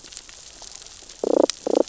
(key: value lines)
label: biophony, damselfish
recorder: SoundTrap 600 or HydroMoth